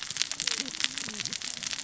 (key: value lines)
label: biophony, cascading saw
recorder: SoundTrap 600 or HydroMoth